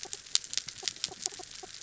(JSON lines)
{"label": "anthrophony, mechanical", "recorder": "SoundTrap 300"}